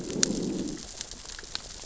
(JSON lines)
{"label": "biophony, growl", "recorder": "SoundTrap 600 or HydroMoth"}